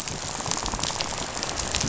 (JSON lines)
{"label": "biophony, rattle", "recorder": "SoundTrap 500"}